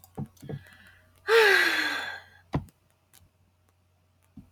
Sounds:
Sigh